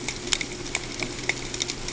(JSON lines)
{"label": "ambient", "recorder": "HydroMoth"}